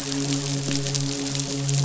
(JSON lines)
{"label": "biophony, midshipman", "recorder": "SoundTrap 500"}